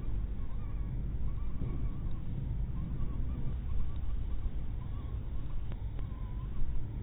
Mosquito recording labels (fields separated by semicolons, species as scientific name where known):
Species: mosquito; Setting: cup